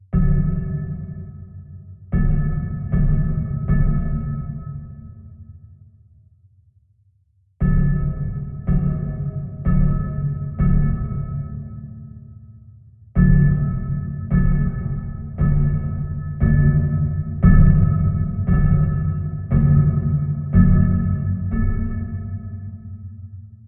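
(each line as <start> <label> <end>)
0.0 A metallic hammering reverberates. 2.0
2.0 A repeated metallic hammering sound reverberates. 5.9
7.6 A repeated metallic hammering sound reverberates. 12.9
13.1 A loud, repeated metallic hammering reverberates. 23.6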